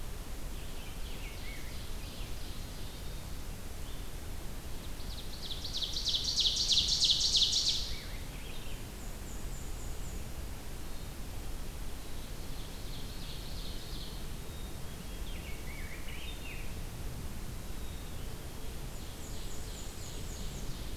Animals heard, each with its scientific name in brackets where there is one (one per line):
Ovenbird (Seiurus aurocapilla)
Black-capped Chickadee (Poecile atricapillus)
Scarlet Tanager (Piranga olivacea)
Black-and-white Warbler (Mniotilta varia)